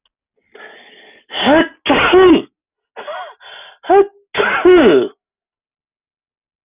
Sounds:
Sneeze